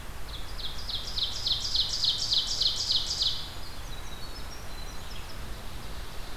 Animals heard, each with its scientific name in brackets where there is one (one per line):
Red-eyed Vireo (Vireo olivaceus)
Ovenbird (Seiurus aurocapilla)
Winter Wren (Troglodytes hiemalis)